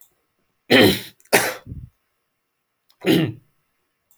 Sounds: Throat clearing